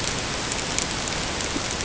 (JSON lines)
{"label": "ambient", "recorder": "HydroMoth"}